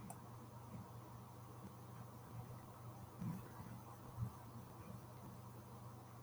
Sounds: Sigh